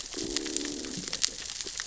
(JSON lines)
{"label": "biophony, growl", "recorder": "SoundTrap 600 or HydroMoth"}